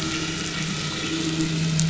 {"label": "anthrophony, boat engine", "recorder": "SoundTrap 500"}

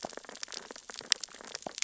{"label": "biophony, sea urchins (Echinidae)", "recorder": "SoundTrap 600 or HydroMoth"}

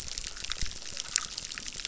{"label": "biophony, chorus", "recorder": "SoundTrap 600"}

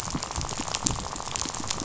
{"label": "biophony, rattle", "recorder": "SoundTrap 500"}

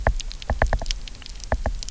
{"label": "biophony, knock", "recorder": "SoundTrap 300"}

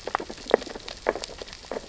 {"label": "biophony, sea urchins (Echinidae)", "recorder": "SoundTrap 600 or HydroMoth"}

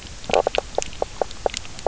{"label": "biophony, knock croak", "recorder": "SoundTrap 300"}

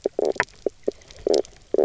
{"label": "biophony, knock croak", "recorder": "SoundTrap 300"}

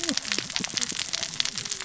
{"label": "biophony, cascading saw", "recorder": "SoundTrap 600 or HydroMoth"}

